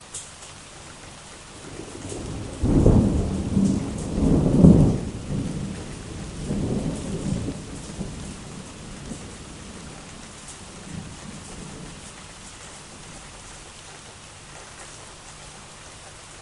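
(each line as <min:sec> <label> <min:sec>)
0:02.5 Thunder roars loudly during rain. 0:05.2
0:05.3 Rain falling with distant thunder. 0:12.0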